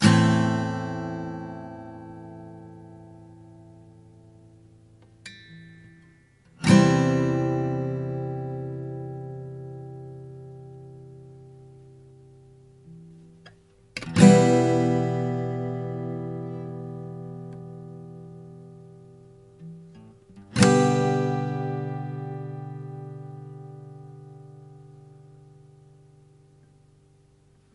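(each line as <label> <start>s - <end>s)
An acoustic guitar plays a chord. 0.0s - 3.3s
A person hits a guitar producing a muffled ding sound. 5.2s - 5.5s
An acoustic guitar plays a chord. 6.5s - 11.2s
A person touches a guitar string. 13.4s - 13.6s
An acoustic guitar plays a chord. 14.1s - 18.6s
A person touches multiple guitar strings, producing muffled sounds. 19.5s - 20.3s
An acoustic guitar plays a chord. 20.5s - 25.1s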